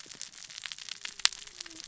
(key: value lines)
label: biophony, cascading saw
recorder: SoundTrap 600 or HydroMoth